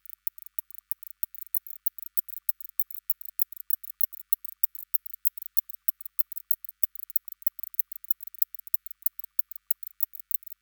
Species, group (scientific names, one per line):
Barbitistes kaltenbachi
Orthoptera